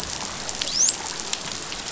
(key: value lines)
label: biophony, dolphin
recorder: SoundTrap 500